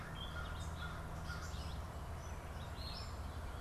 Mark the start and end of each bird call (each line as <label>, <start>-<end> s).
American Crow (Corvus brachyrhynchos), 0.0-1.6 s
Gray Catbird (Dumetella carolinensis), 0.0-3.6 s